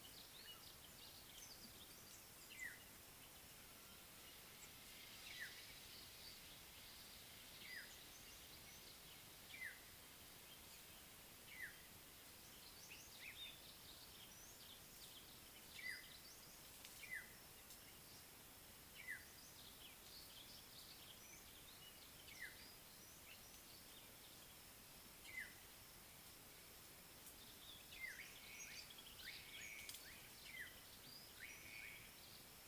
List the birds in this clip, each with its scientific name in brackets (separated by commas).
African Black-headed Oriole (Oriolus larvatus), Slate-colored Boubou (Laniarius funebris), Common Bulbul (Pycnonotus barbatus)